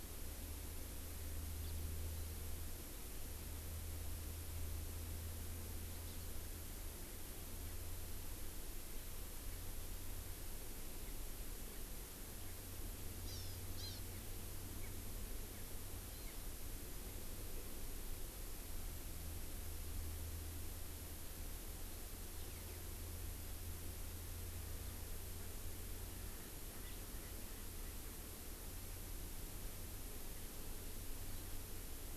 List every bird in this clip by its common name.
House Finch, Hawaii Amakihi, Erckel's Francolin